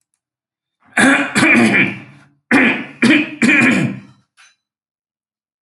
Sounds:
Throat clearing